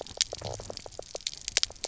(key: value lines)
label: biophony, knock croak
recorder: SoundTrap 300